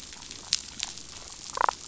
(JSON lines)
{"label": "biophony, damselfish", "recorder": "SoundTrap 500"}